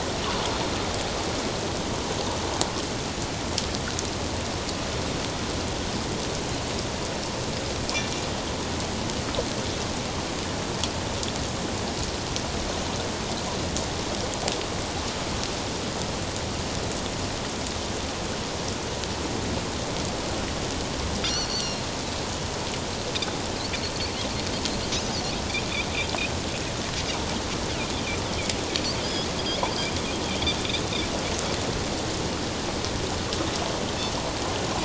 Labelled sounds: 21.2	21.8	Pacific white-sided dolphin, 2.8 to 6.1 kHz
29.0	29.3	Pacific white-sided dolphin, 4.8 to 5.2 kHz

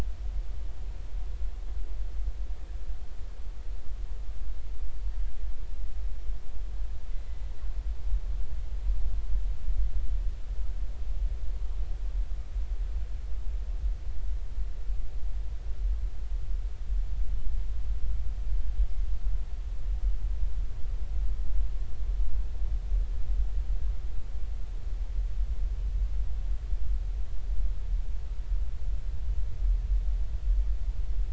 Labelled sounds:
4.9	5.2	killer whale, 4.5 to 4.7 kHz

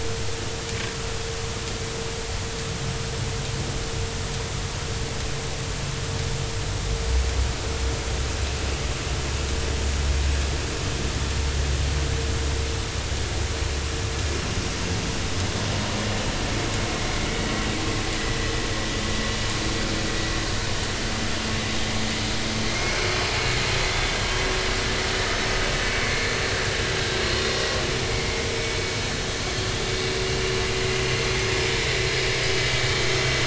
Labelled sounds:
22.7	23.1	vessel noise, 2.1 to 2.2 kHz
23.9	24.2	vessel noise, 3.4 to 3.5 kHz
28.1	28.4	vessel noise, 2.0 to 2.3 kHz

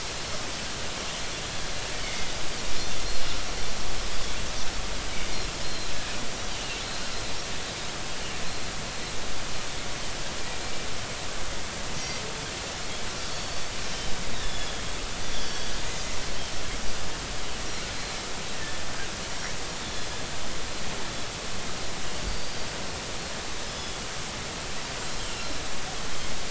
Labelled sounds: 2.0	2.4	Pacific white-sided dolphin, 2.0 to 2.3 kHz
5.6	6.0	Pacific white-sided dolphin, 3.9 to 4.3 kHz
13.2	13.6	Pacific white-sided dolphin, 3.3 to 4.6 kHz
14.3	15.7	Pacific white-sided dolphin, 3.2 to 5.8 kHz
19.8	20.1	Pacific white-sided dolphin, 3.4 to 3.6 kHz
22.3	22.7	Pacific white-sided dolphin, 4.5 to 5.0 kHz
23.6	24.0	Pacific white-sided dolphin, 3.3 to 5.2 kHz

